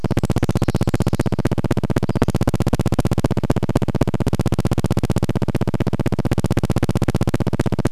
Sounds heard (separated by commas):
Pacific Wren song, recorder noise, Pacific-slope Flycatcher call